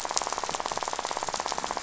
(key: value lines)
label: biophony, rattle
recorder: SoundTrap 500